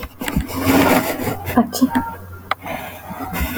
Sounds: Sniff